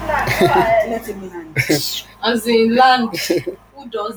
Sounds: Laughter